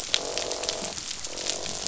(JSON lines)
{"label": "biophony, croak", "recorder": "SoundTrap 500"}